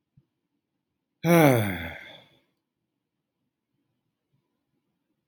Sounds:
Sigh